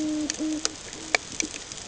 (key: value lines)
label: ambient
recorder: HydroMoth